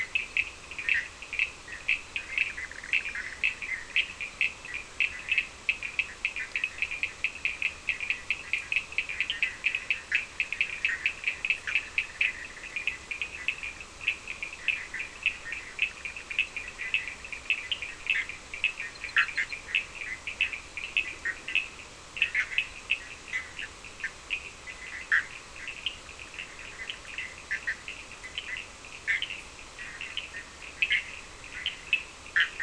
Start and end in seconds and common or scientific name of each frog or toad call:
0.0	3.9	Bischoff's tree frog
0.0	32.6	Cochran's lime tree frog
9.2	32.6	Bischoff's tree frog